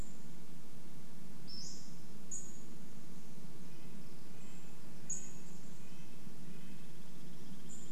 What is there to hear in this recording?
Pacific-slope Flycatcher call, insect buzz, Red-breasted Nuthatch song, Douglas squirrel rattle